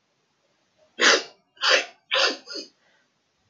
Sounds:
Sniff